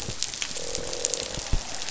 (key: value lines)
label: biophony, croak
recorder: SoundTrap 500